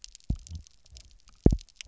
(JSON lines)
{"label": "biophony, double pulse", "recorder": "SoundTrap 300"}